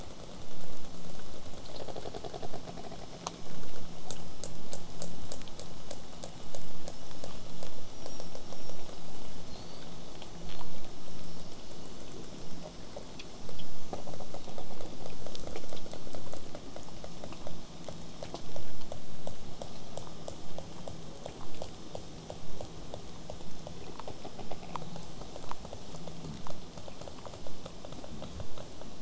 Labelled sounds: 6.8	10.7	killer whale, southern resident, J pod, whistle, 3.9 to 8.0 kHz

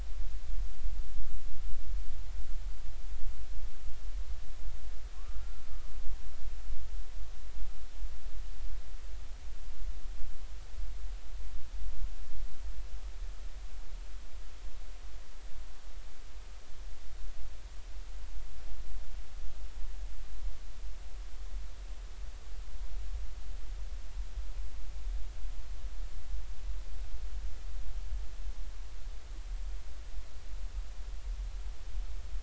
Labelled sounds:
5.1	5.4	humpback whale, 1.0 to 1.4 kHz

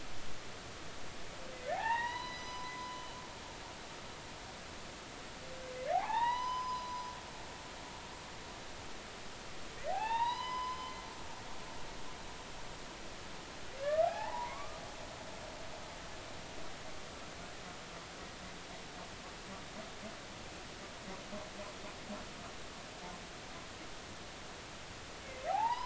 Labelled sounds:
1.7	3.1	humpback whale, 0.80 to 6.0 kHz
5.9	7.0	humpback whale, 0.80 to 6.1 kHz
9.9	10.9	humpback whale, 0.80 to 5.2 kHz
13.8	14.8	humpback whale, 0.80 to 2.4 kHz
25.5	25.8	humpback whale, 0.80 to 3.1 kHz

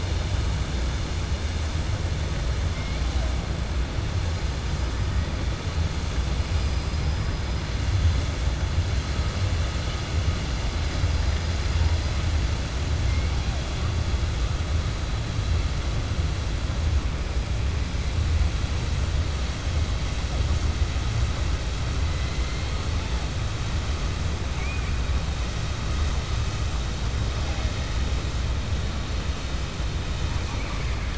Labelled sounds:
24.5	25.0	killer whale, 1.5 to 2.5 kHz

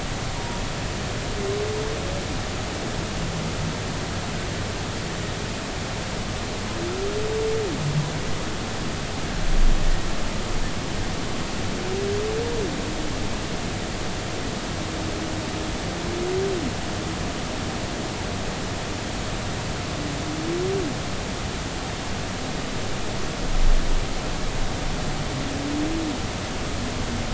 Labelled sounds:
0.3	0.6	humpback whale, 0.90 to 0.99 kHz

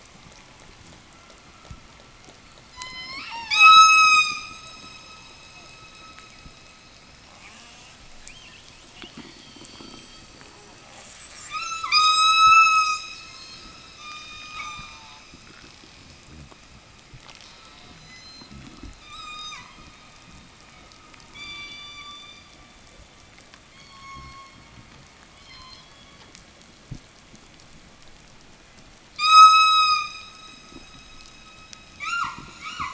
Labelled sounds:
2.6	4.6	killer whale, southern resident, 0 to 8.0 kHz
7.2	10.8	killer whale, southern resident, 0 to 5.2 kHz
11.3	13.3	killer whale, southern resident, 0 to 8.0 kHz
13.7	15.4	killer whale, southern resident, 0 to 8.0 kHz

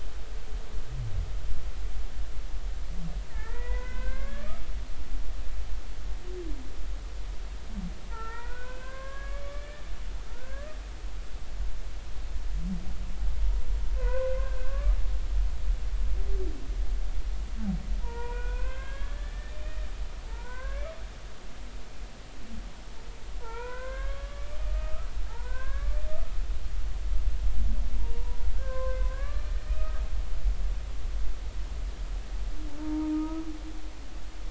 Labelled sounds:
3.3	4.6	humpback whale, 0.83 to 2.6 kHz
8.1	9.8	humpback whale, 0.83 to 3.5 kHz
10.2	10.8	humpback whale, 1.0 to 1.9 kHz
14.0	15.0	humpback whale, 0.93 to 2.7 kHz
18.0	20.9	humpback whale, 0.83 to 3.4 kHz
23.4	26.0	humpback whale, 0.80 to 3.4 kHz
28.0	30.0	humpback whale, 0.90 to 2.6 kHz
32.8	33.4	humpback whale, 0.86 to 1.3 kHz

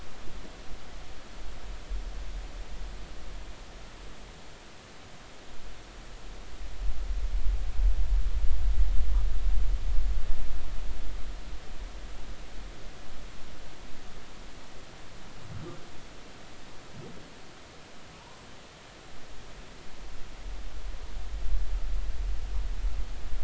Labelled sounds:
18.2	18.4	humpback whale, 0.83 to 1.1 kHz

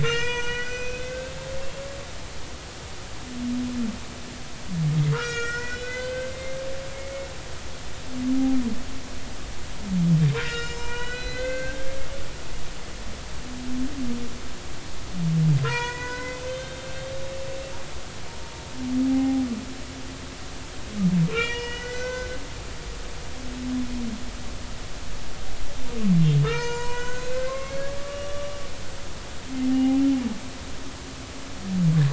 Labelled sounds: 0.0	1.4	humpback whale, 0.90 to 7.3 kHz
5.1	6.6	humpback whale, 1.2 to 7.7 kHz
6.9	7.3	humpback whale, 2.1 to 2.3 kHz
10.4	11.9	humpback whale, 0.90 to 7.2 kHz
15.6	16.9	humpback whale, 0.90 to 6.4 kHz
17.3	17.6	humpback whale, 2.6 to 2.7 kHz
19.1	19.5	humpback whale, 0.80 to 0.86 kHz
21.3	22.4	humpback whale, 0.90 to 6.3 kHz
26.4	28.5	humpback whale, 0.90 to 7.6 kHz
29.7	30.0	humpback whale, 0.80 to 0.86 kHz

